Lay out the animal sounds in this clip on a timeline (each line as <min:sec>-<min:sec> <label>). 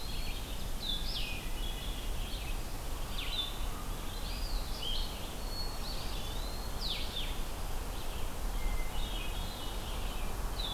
0:00.0-0:10.7 Blue-headed Vireo (Vireo solitarius)
0:00.0-0:10.7 Red-eyed Vireo (Vireo olivaceus)
0:00.8-0:02.1 Hermit Thrush (Catharus guttatus)
0:04.1-0:04.7 Eastern Wood-Pewee (Contopus virens)
0:05.3-0:06.5 Hermit Thrush (Catharus guttatus)
0:05.8-0:06.7 Eastern Wood-Pewee (Contopus virens)
0:08.5-0:09.9 Hermit Thrush (Catharus guttatus)